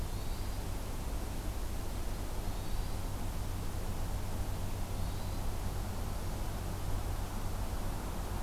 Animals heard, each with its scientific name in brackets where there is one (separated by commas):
Hermit Thrush (Catharus guttatus)